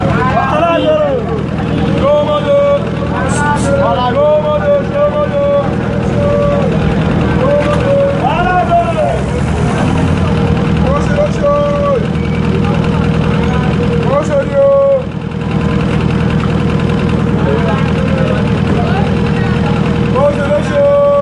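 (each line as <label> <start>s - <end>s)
A man is shouting repeatedly. 0.0s - 21.2s
An engine is running continuously. 0.0s - 21.2s
People talking in the background. 0.0s - 21.2s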